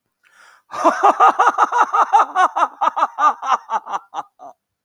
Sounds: Laughter